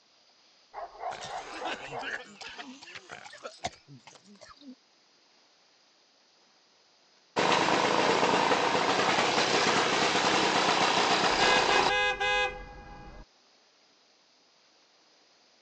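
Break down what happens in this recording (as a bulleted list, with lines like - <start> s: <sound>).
- 0.7 s: a dog barks
- 1.1 s: someone coughs
- 7.4 s: the sound of a lawn mower
- 11.3 s: you can hear a vehicle horn
- an even, faint noise lies about 35 dB below the sounds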